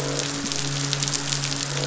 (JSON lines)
{"label": "biophony, midshipman", "recorder": "SoundTrap 500"}
{"label": "biophony, croak", "recorder": "SoundTrap 500"}